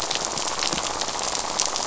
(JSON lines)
{"label": "biophony, rattle", "recorder": "SoundTrap 500"}